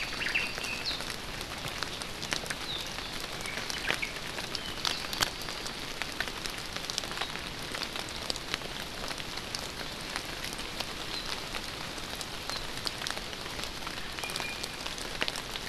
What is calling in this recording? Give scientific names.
Myadestes obscurus, Drepanis coccinea, Zosterops japonicus, Himatione sanguinea